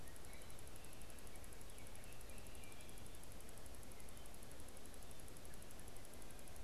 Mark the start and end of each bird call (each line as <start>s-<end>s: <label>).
1.5s-3.0s: Baltimore Oriole (Icterus galbula)